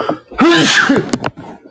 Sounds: Sneeze